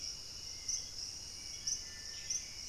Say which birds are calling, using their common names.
Dusky-capped Greenlet, Hauxwell's Thrush, Dusky-throated Antshrike